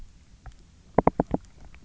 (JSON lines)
{"label": "biophony, knock", "recorder": "SoundTrap 300"}